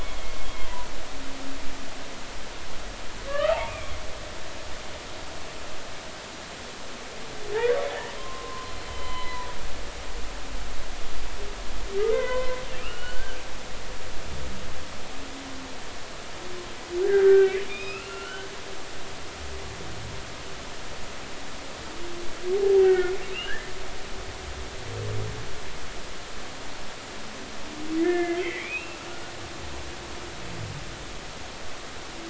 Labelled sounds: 3.3	3.9	humpback whale, 0.80 to 2.6 kHz
8.2	9.5	humpback whale, 0.93 to 4.2 kHz
12.0	13.4	humpback whale, 0.96 to 3.1 kHz
17.0	18.5	humpback whale, 1.2 to 3.8 kHz
22.5	23.7	humpback whale, 0.80 to 3.1 kHz
28.0	29.0	humpback whale, 1.6 to 2.8 kHz

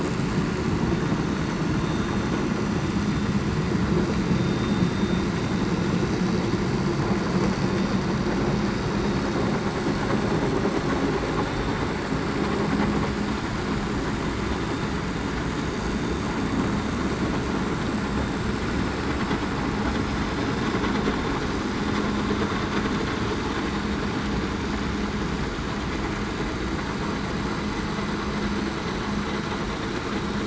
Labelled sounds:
4.3	4.8	vessel noise, 3.6 to 3.7 kHz

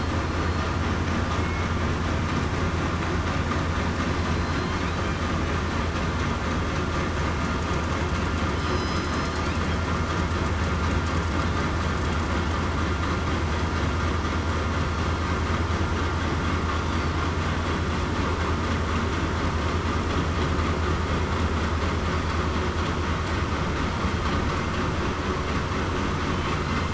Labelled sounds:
8.6	9.3	killer whale, southern resident, 4.0 to 6.1 kHz

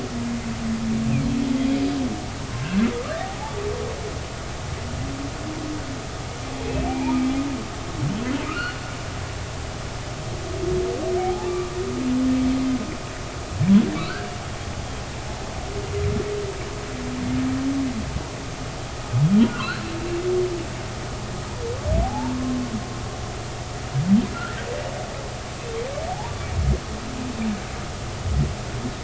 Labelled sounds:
6.8	7.3	humpback whale, 2.2 to 2.5 kHz
8.5	8.8	humpback whale, 1.2 to 3.0 kHz
11.2	11.8	humpback whale, 0.80 to 1.2 kHz
13.9	14.3	humpback whale, 1.1 to 1.7 kHz
19.5	19.8	humpback whale, 0.99 to 1.7 kHz
22.0	22.6	humpback whale, 0.80 to 1.1 kHz
24.3	24.6	humpback whale, 1.3 to 1.9 kHz
26.1	26.3	humpback whale, 0.80 to 1.0 kHz

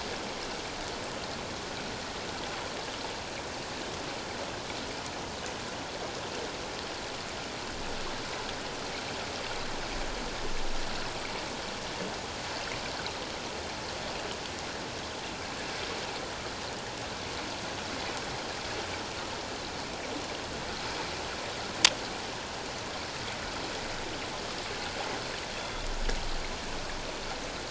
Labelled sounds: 25.6	25.9	killer whale, northern resident, 3.4 to 3.5 kHz

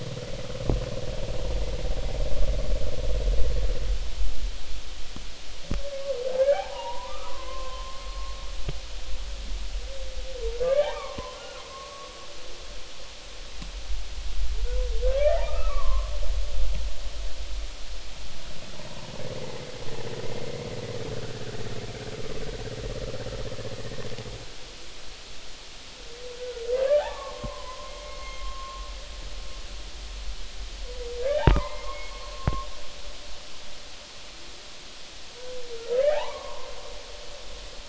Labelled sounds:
6.4	8.3	humpback whale, 0.80 to 2.5 kHz
10.6	12.1	humpback whale, 0.80 to 2.5 kHz
15.0	16.1	humpback whale, 0.80 to 2.0 kHz
26.4	28.8	humpback whale, 0.80 to 2.2 kHz
31.2	32.7	humpback whale, 0.80 to 2.2 kHz
36.0	36.7	humpback whale, 0.80 to 2.0 kHz

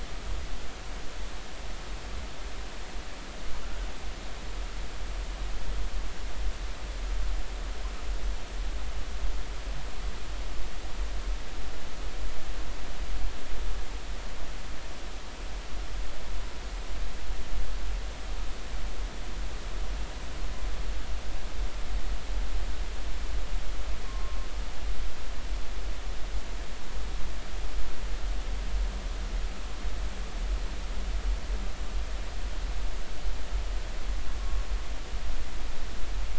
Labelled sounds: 24.0	24.4	humpback whale, 1.0 to 1.1 kHz

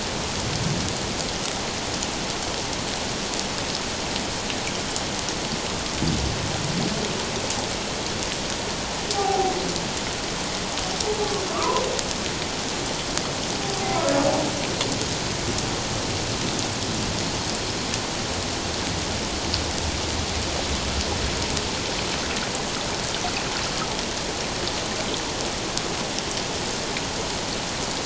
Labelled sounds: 9.1	9.5	humpback whale, 0.78 to 0.88 kHz
11.2	11.8	humpback whale, 0.91 to 1.3 kHz

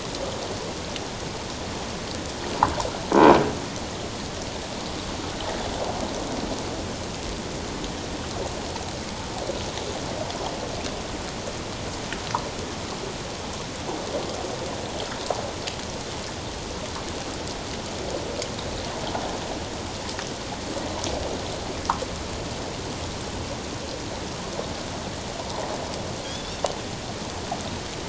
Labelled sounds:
26.2	26.6	Pacific white-sided dolphin, 3.2 to 3.8 kHz

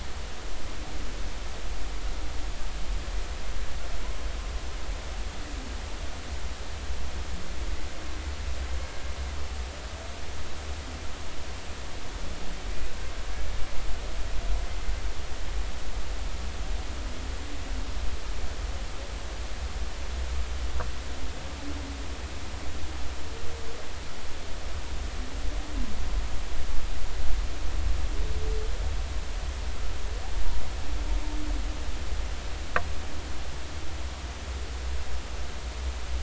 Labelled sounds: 12.7	12.9	humpback whale, 2.3 to 2.7 kHz

